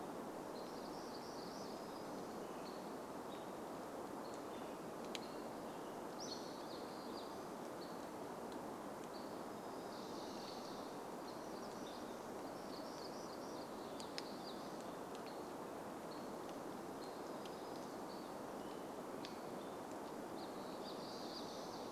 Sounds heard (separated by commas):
American Robin song, Dark-eyed Junco song, Hammond's Flycatcher song, Hammond's Flycatcher call, warbler song